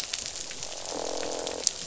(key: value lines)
label: biophony, croak
recorder: SoundTrap 500